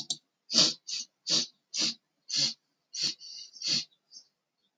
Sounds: Sniff